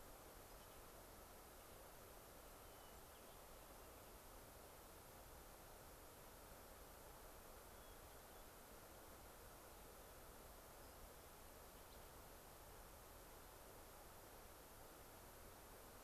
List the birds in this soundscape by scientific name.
Catharus guttatus, unidentified bird